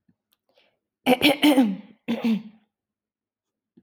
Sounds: Throat clearing